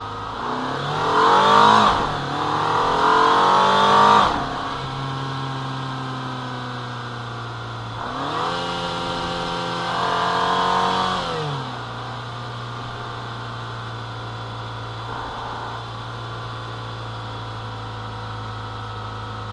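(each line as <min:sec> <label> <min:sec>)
0:00.1 A car is accelerating. 0:04.6
0:01.8 A car is changing gears. 0:02.6
0:04.0 A car is changing gears. 0:05.1
0:05.0 A car gradually slows down. 0:08.1
0:08.1 A car accelerates gradually. 0:11.5
0:11.5 A car gradually decelerates. 0:14.3
0:14.3 A car is driving at a constant speed. 0:19.5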